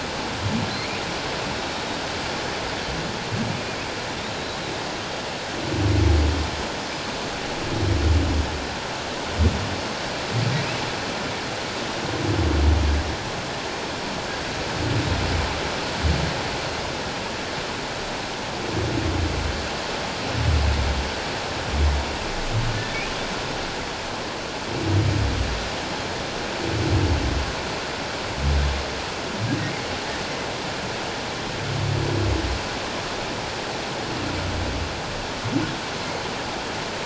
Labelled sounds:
22.7	23.0	humpback whale, 1.7 to 1.8 kHz

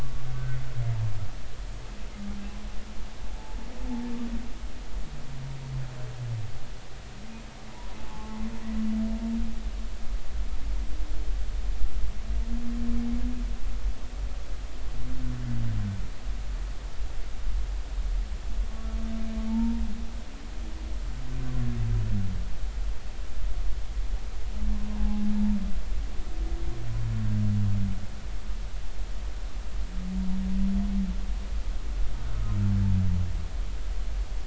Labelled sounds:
0.0	0.2	humpback whale, 1.1 to 1.2 kHz
7.7	8.4	humpback whale, 0.80 to 1.1 kHz
19.5	19.8	humpback whale, 0.83 to 0.99 kHz
25.0	25.2	humpback whale, 0.80 to 0.90 kHz

